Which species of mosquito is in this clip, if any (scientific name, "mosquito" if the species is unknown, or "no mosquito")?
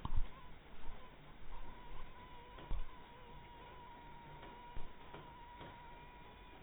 mosquito